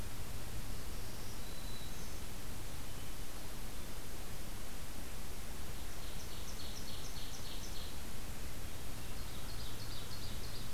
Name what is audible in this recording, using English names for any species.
Black-throated Green Warbler, Hermit Thrush, Ovenbird